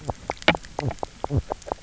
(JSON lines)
{"label": "biophony, knock croak", "recorder": "SoundTrap 300"}